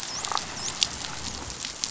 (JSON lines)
{"label": "biophony, dolphin", "recorder": "SoundTrap 500"}